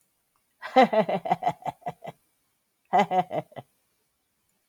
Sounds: Laughter